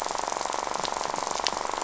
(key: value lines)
label: biophony, rattle
recorder: SoundTrap 500